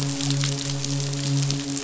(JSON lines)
{"label": "biophony, midshipman", "recorder": "SoundTrap 500"}